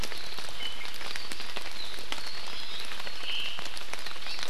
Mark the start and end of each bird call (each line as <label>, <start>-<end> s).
Iiwi (Drepanis coccinea), 2.4-2.9 s
Omao (Myadestes obscurus), 3.2-3.6 s
Hawaii Amakihi (Chlorodrepanis virens), 4.2-4.4 s